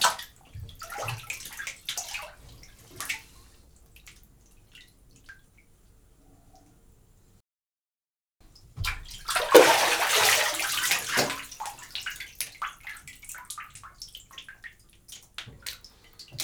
Are they shaving?
no